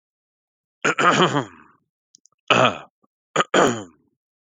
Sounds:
Throat clearing